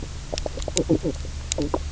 {"label": "biophony, knock croak", "recorder": "SoundTrap 300"}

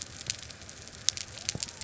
{"label": "biophony", "recorder": "SoundTrap 300"}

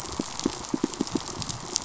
{"label": "biophony, pulse", "recorder": "SoundTrap 500"}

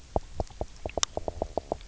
{"label": "biophony, knock", "recorder": "SoundTrap 300"}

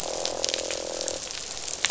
{"label": "biophony, croak", "recorder": "SoundTrap 500"}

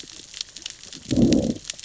{"label": "biophony, growl", "recorder": "SoundTrap 600 or HydroMoth"}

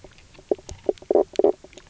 {"label": "biophony, knock croak", "recorder": "SoundTrap 300"}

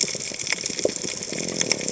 {"label": "biophony", "recorder": "HydroMoth"}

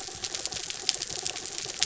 {"label": "anthrophony, mechanical", "recorder": "SoundTrap 300"}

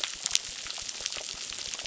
{"label": "biophony, crackle", "recorder": "SoundTrap 600"}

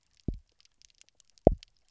{"label": "biophony, double pulse", "recorder": "SoundTrap 300"}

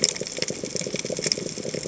{"label": "biophony, chatter", "recorder": "HydroMoth"}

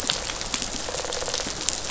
{"label": "biophony, rattle response", "recorder": "SoundTrap 500"}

